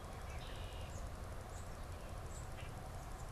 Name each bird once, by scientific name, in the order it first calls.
Agelaius phoeniceus, unidentified bird